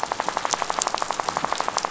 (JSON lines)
{"label": "biophony, rattle", "recorder": "SoundTrap 500"}